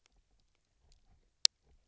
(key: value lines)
label: biophony, knock croak
recorder: SoundTrap 300